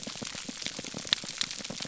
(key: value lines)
label: biophony, pulse
recorder: SoundTrap 300